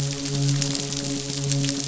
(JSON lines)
{"label": "biophony, midshipman", "recorder": "SoundTrap 500"}